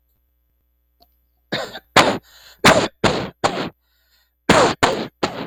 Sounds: Cough